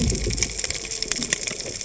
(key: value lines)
label: biophony, cascading saw
recorder: HydroMoth